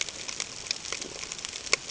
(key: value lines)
label: ambient
recorder: HydroMoth